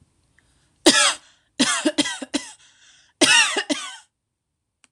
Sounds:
Cough